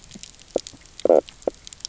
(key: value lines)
label: biophony, knock croak
recorder: SoundTrap 300